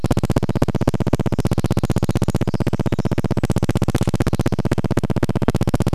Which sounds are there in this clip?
Pacific Wren song, recorder noise